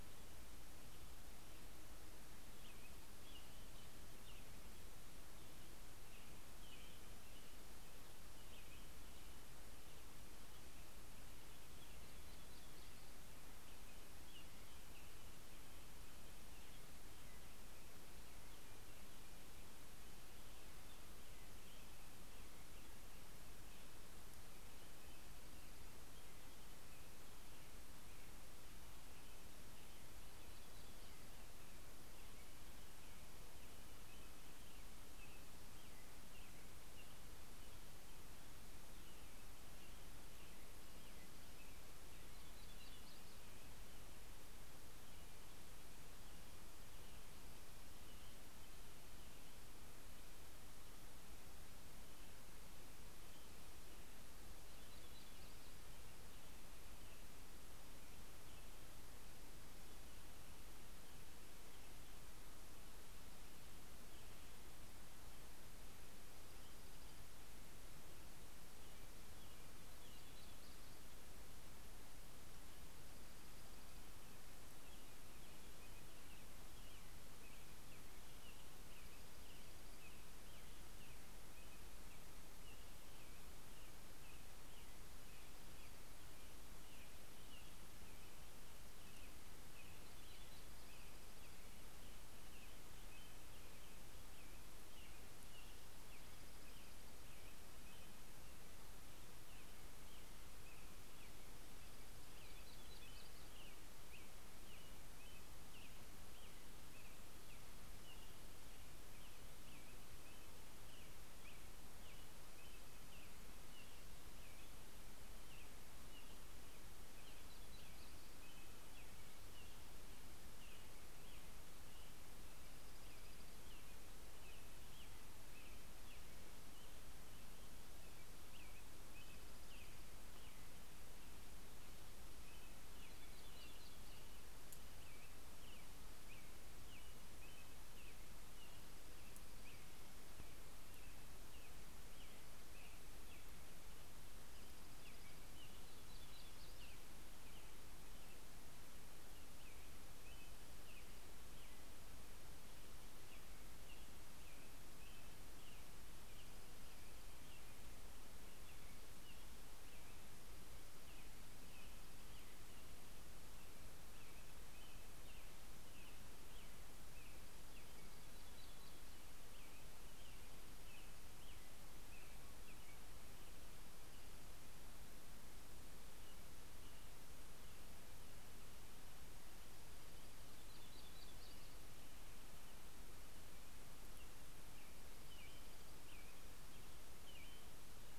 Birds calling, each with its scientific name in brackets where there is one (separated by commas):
Yellow-rumped Warbler (Setophaga coronata), Dark-eyed Junco (Junco hyemalis), American Robin (Turdus migratorius), Red-breasted Nuthatch (Sitta canadensis)